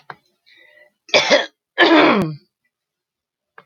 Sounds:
Throat clearing